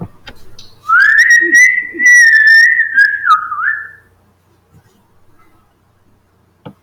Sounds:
Sigh